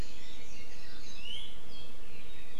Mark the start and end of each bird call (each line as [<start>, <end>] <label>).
[1.10, 1.50] Iiwi (Drepanis coccinea)